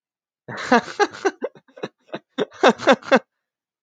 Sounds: Laughter